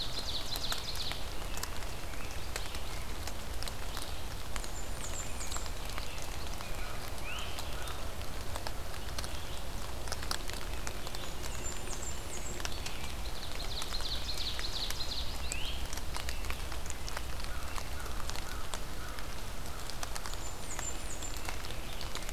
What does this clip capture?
Ovenbird, Red-eyed Vireo, American Robin, Blackburnian Warbler, American Crow, Great Crested Flycatcher